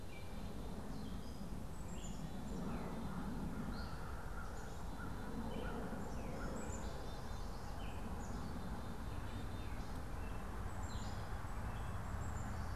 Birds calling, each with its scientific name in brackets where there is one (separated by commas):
Black-capped Chickadee (Poecile atricapillus), American Crow (Corvus brachyrhynchos), Gray Catbird (Dumetella carolinensis)